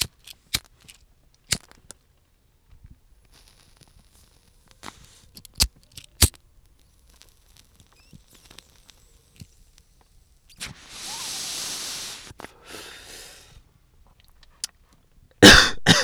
Was there talking?
no